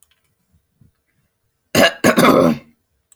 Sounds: Throat clearing